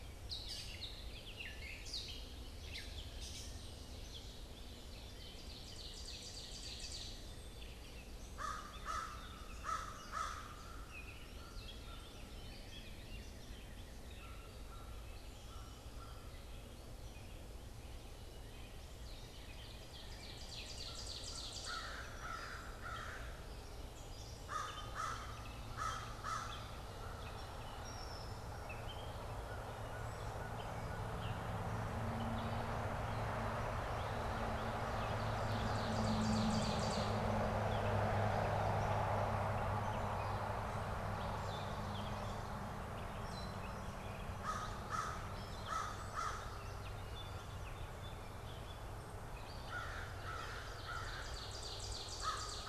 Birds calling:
American Crow (Corvus brachyrhynchos)
Common Yellowthroat (Geothlypis trichas)
Gray Catbird (Dumetella carolinensis)
Ovenbird (Seiurus aurocapilla)
Northern Cardinal (Cardinalis cardinalis)
Red-winged Blackbird (Agelaius phoeniceus)

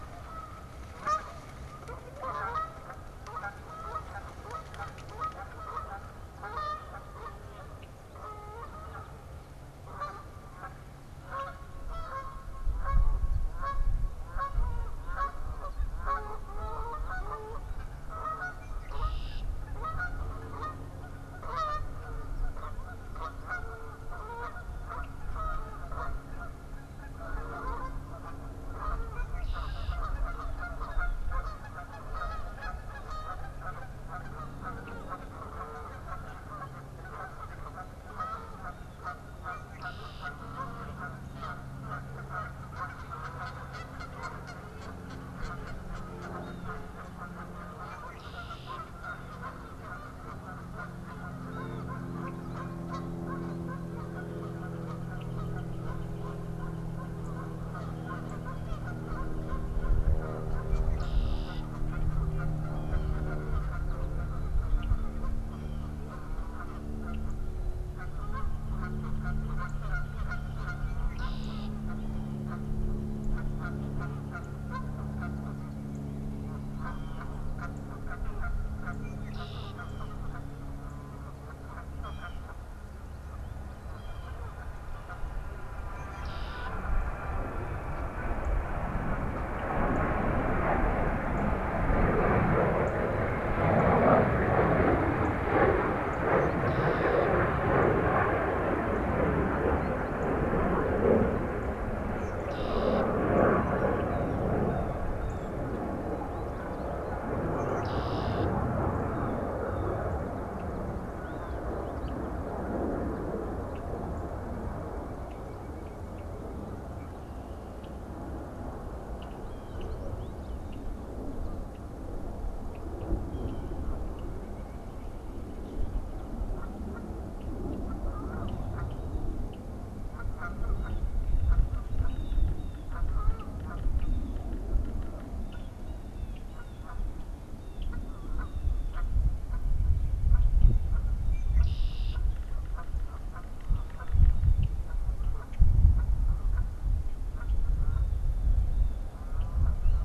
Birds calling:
Yellow-bellied Sapsucker (Sphyrapicus varius)
unidentified bird
Red-winged Blackbird (Agelaius phoeniceus)
Canada Goose (Branta canadensis)
Pileated Woodpecker (Dryocopus pileatus)
Northern Flicker (Colaptes auratus)
Black-capped Chickadee (Poecile atricapillus)
Northern Cardinal (Cardinalis cardinalis)
Blue Jay (Cyanocitta cristata)
American Goldfinch (Spinus tristis)

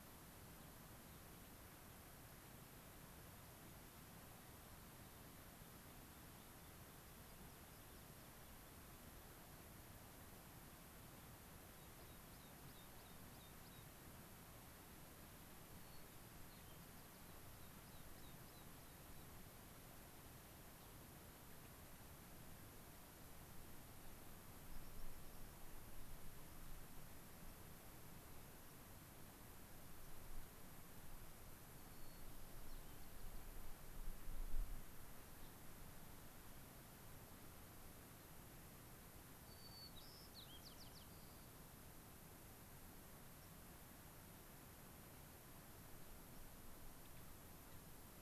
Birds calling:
White-crowned Sparrow (Zonotrichia leucophrys)
American Pipit (Anthus rubescens)

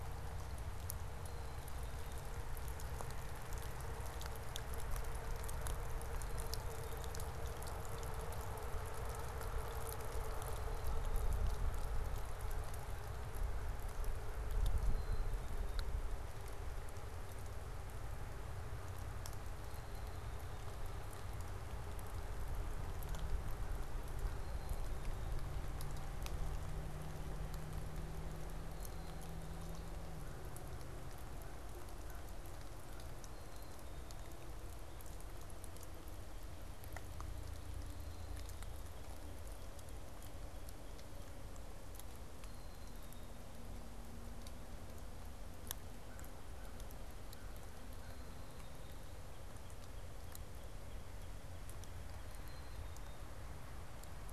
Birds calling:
Black-capped Chickadee (Poecile atricapillus)
American Crow (Corvus brachyrhynchos)
Northern Cardinal (Cardinalis cardinalis)

